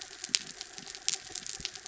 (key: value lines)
label: anthrophony, mechanical
recorder: SoundTrap 300